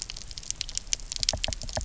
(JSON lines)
{"label": "biophony, knock", "recorder": "SoundTrap 300"}